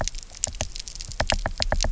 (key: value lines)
label: biophony, knock
recorder: SoundTrap 300